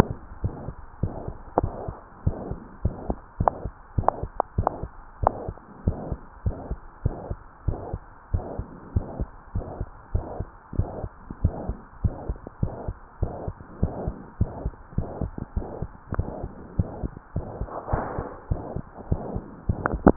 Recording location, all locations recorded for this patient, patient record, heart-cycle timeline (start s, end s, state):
tricuspid valve (TV)
aortic valve (AV)+pulmonary valve (PV)+tricuspid valve (TV)+mitral valve (MV)
#Age: Child
#Sex: Female
#Height: 128.0 cm
#Weight: 37.0 kg
#Pregnancy status: False
#Murmur: Present
#Murmur locations: aortic valve (AV)+mitral valve (MV)+pulmonary valve (PV)+tricuspid valve (TV)
#Most audible location: pulmonary valve (PV)
#Systolic murmur timing: Holosystolic
#Systolic murmur shape: Plateau
#Systolic murmur grading: II/VI
#Systolic murmur pitch: Medium
#Systolic murmur quality: Blowing
#Diastolic murmur timing: nan
#Diastolic murmur shape: nan
#Diastolic murmur grading: nan
#Diastolic murmur pitch: nan
#Diastolic murmur quality: nan
#Outcome: Abnormal
#Campaign: 2015 screening campaign
0.00	5.80	unannotated
5.80	5.95	S1
5.95	6.08	systole
6.08	6.18	S2
6.18	6.41	diastole
6.41	6.55	S1
6.55	6.67	systole
6.67	6.78	S2
6.78	7.04	diastole
7.04	7.16	S1
7.16	7.28	systole
7.28	7.38	S2
7.38	7.66	diastole
7.66	7.80	S1
7.80	7.90	systole
7.90	8.00	S2
8.00	8.30	diastole
8.30	8.46	S1
8.46	8.58	systole
8.58	8.68	S2
8.68	8.94	diastole
8.94	9.08	S1
9.08	9.18	systole
9.18	9.28	S2
9.28	9.54	diastole
9.54	9.66	S1
9.66	9.78	systole
9.78	9.86	S2
9.86	10.10	diastole
10.10	10.26	S1
10.26	10.36	systole
10.36	10.48	S2
10.48	10.74	diastole
10.74	10.90	S1
10.90	11.02	systole
11.02	11.10	S2
11.10	11.36	diastole
11.36	11.52	S1
11.52	11.64	systole
11.64	11.76	S2
11.76	12.00	diastole
12.00	12.16	S1
12.16	12.28	systole
12.28	12.38	S2
12.38	12.62	diastole
12.62	12.74	S1
12.74	12.86	systole
12.86	12.94	S2
12.94	13.18	diastole
13.18	13.34	S1
13.34	13.46	systole
13.46	13.54	S2
13.54	13.80	diastole
13.80	13.94	S1
13.94	14.02	systole
14.02	14.16	S2
14.16	14.40	diastole
14.40	14.52	S1
14.52	14.60	systole
14.60	14.72	S2
14.72	14.96	diastole
14.96	15.10	S1
15.10	15.20	systole
15.20	15.32	S2
15.32	15.56	diastole
15.56	15.68	S1
15.68	15.80	systole
15.80	15.90	S2
15.90	16.12	diastole
16.12	16.28	S1
16.28	16.42	systole
16.42	16.52	S2
16.52	16.76	diastole
16.76	16.92	S1
16.92	17.02	systole
17.02	17.12	S2
17.12	17.36	diastole
17.36	20.16	unannotated